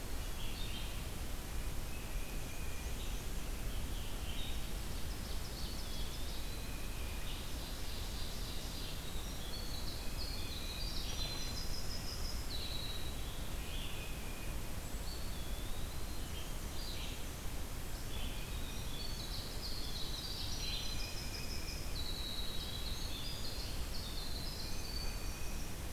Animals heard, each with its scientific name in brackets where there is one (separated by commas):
Red-eyed Vireo (Vireo olivaceus), Tufted Titmouse (Baeolophus bicolor), Black-and-white Warbler (Mniotilta varia), Ovenbird (Seiurus aurocapilla), Eastern Wood-Pewee (Contopus virens), Winter Wren (Troglodytes hiemalis)